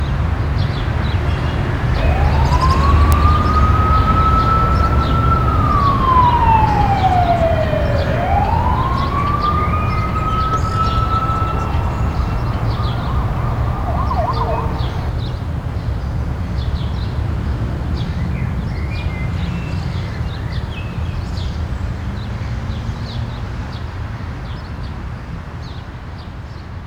Is there an emergency?
yes